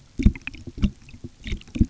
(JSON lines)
{"label": "geophony, waves", "recorder": "SoundTrap 300"}